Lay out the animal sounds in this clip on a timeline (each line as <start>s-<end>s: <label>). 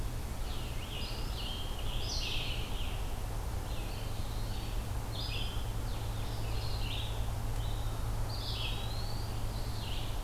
0.0s-10.2s: Red-eyed Vireo (Vireo olivaceus)
0.3s-3.2s: Scarlet Tanager (Piranga olivacea)
3.8s-4.9s: Eastern Wood-Pewee (Contopus virens)
8.3s-9.5s: Eastern Wood-Pewee (Contopus virens)